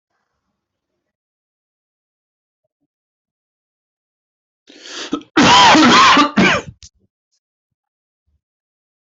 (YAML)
expert_labels:
- quality: good
  cough_type: dry
  dyspnea: false
  wheezing: false
  stridor: false
  choking: false
  congestion: false
  nothing: true
  diagnosis: upper respiratory tract infection
  severity: mild